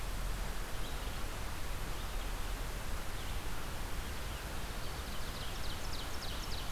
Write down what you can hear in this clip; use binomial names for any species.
Vireo olivaceus, Seiurus aurocapilla